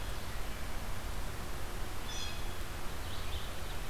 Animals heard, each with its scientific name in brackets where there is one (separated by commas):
Red-eyed Vireo (Vireo olivaceus), Blue Jay (Cyanocitta cristata)